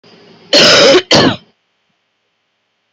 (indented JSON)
{
  "expert_labels": [
    {
      "quality": "good",
      "cough_type": "wet",
      "dyspnea": false,
      "wheezing": false,
      "stridor": false,
      "choking": false,
      "congestion": false,
      "nothing": true,
      "diagnosis": "lower respiratory tract infection",
      "severity": "mild"
    }
  ],
  "age": 35,
  "gender": "female",
  "respiratory_condition": false,
  "fever_muscle_pain": true,
  "status": "symptomatic"
}